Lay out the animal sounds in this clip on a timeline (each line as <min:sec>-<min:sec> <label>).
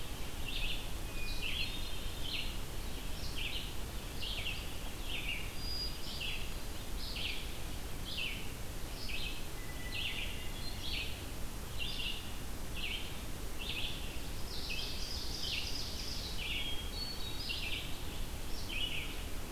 0:00.0-0:19.1 Red-eyed Vireo (Vireo olivaceus)
0:01.0-0:02.3 Hermit Thrush (Catharus guttatus)
0:05.5-0:06.8 Hermit Thrush (Catharus guttatus)
0:09.3-0:11.0 Hermit Thrush (Catharus guttatus)
0:14.3-0:16.4 Ovenbird (Seiurus aurocapilla)
0:16.4-0:17.8 Hermit Thrush (Catharus guttatus)